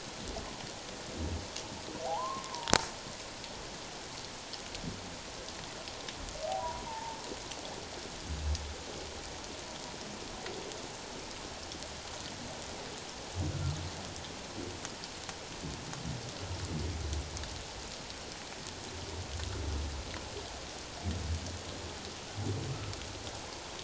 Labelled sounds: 2.1	2.7	humpback whale, 0.78 to 1.2 kHz
6.6	7.2	humpback whale, 0.84 to 1.0 kHz

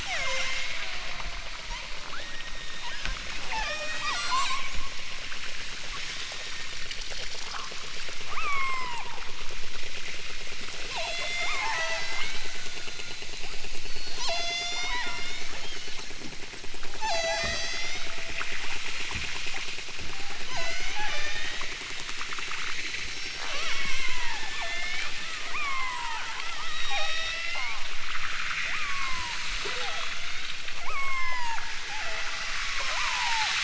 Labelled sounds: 0.0	4.6	killer whale, southern Alaska resident, 0.23 to 8.0 kHz
5.9	6.8	killer whale, southern Alaska resident, 3.2 to 5.8 kHz
8.3	9.1	killer whale, southern Alaska resident, 0.50 to 8.0 kHz
10.9	13.3	killer whale, southern Alaska resident, 0.32 to 8.0 kHz
14.1	16.1	killer whale, southern Alaska resident, 0.37 to 8.0 kHz
17.0	18.2	killer whale, southern Alaska resident, 0.32 to 8.0 kHz
20.5	21.8	killer whale, southern Alaska resident, 0.18 to 8.0 kHz
22.6	26.3	killer whale, southern Alaska resident, 0.41 to 8.0 kHz
26.7	28.0	killer whale, southern Alaska resident, 0.32 to 8.0 kHz
28.7	32.6	killer whale, southern Alaska resident, 0.32 to 8.0 kHz
32.9	33.6	killer whale, southern Alaska resident, 0.41 to 1.3 kHz

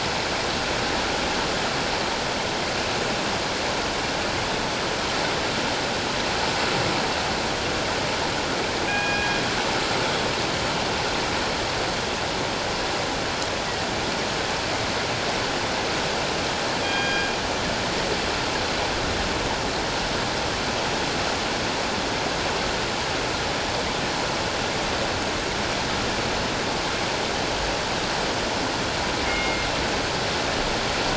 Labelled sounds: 8.9	9.4	killer whale, northern resident, G clan, call N24ii, 1.6 to 2.5 kHz
16.8	17.3	killer whale, northern resident, G clan, call N24ii, 1.6 to 4.9 kHz
29.3	29.7	killer whale, northern resident, G clan, call N24ii, 2.1 to 2.9 kHz

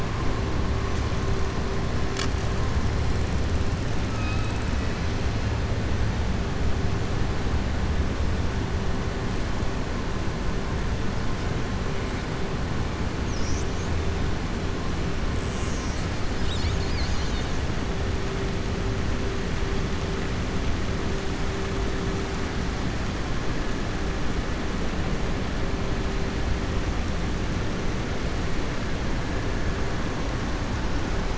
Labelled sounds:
4.0	4.6	killer whale, southern resident, 2.5 to 5.1 kHz

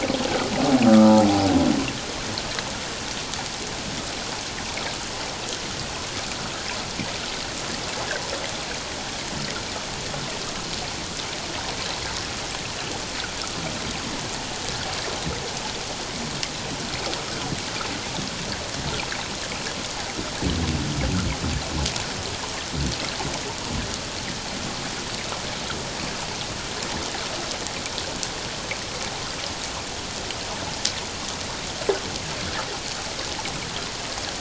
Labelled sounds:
0.8	1.2	humpback whale, 1.2 to 1.4 kHz

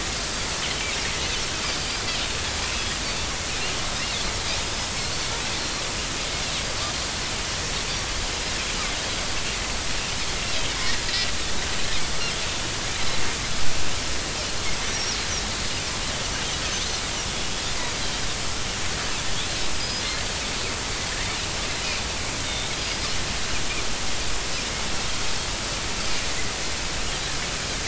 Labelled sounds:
0.1	0.5	Pacific white-sided dolphin, 4.5 to 4.9 kHz
4.6	5.8	Pacific white-sided dolphin, 4.0 to 5.2 kHz
12.9	13.2	Pacific white-sided dolphin, 3.9 to 4.1 kHz
14.8	15.2	Pacific white-sided dolphin, 5.4 to 6.1 kHz
16.7	17.0	Pacific white-sided dolphin, 5.9 to 6.3 kHz
18.0	18.3	Pacific white-sided dolphin, 3.1 to 3.3 kHz
19.8	20.0	Pacific white-sided dolphin, 4.8 to 5.1 kHz
22.5	23.0	Pacific white-sided dolphin, 3.5 to 5.0 kHz

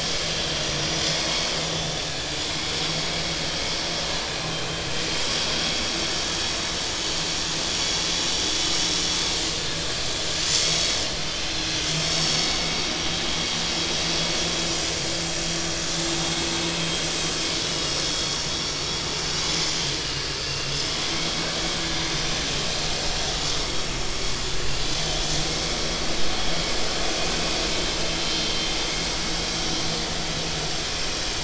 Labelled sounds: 1.2	1.4	vessel noise, 2.1 to 2.3 kHz
5.1	5.4	vessel noise, 3.1 to 3.4 kHz
6.9	7.2	vessel noise, 6.6 to 6.8 kHz
10.7	11.0	vessel noise, 3.8 to 3.9 kHz
11.9	12.5	vessel noise, 4.3 to 5.5 kHz
20.0	20.7	vessel noise, 2.6 to 3.0 kHz

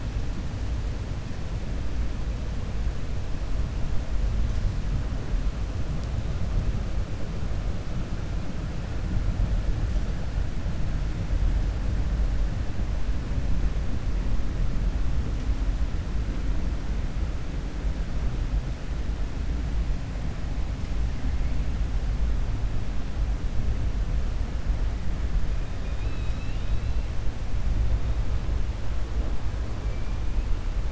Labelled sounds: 25.8	27.0	killer whale, 1.9 to 4.8 kHz

